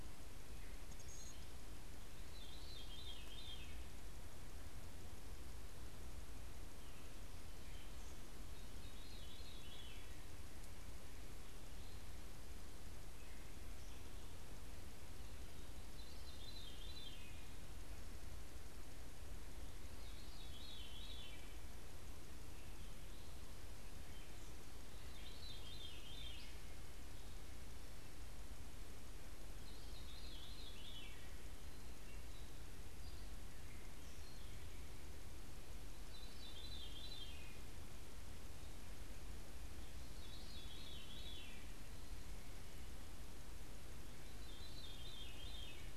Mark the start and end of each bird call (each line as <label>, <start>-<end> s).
Veery (Catharus fuscescens), 0.0-17.6 s
Veery (Catharus fuscescens), 19.8-46.0 s
unidentified bird, 31.9-34.7 s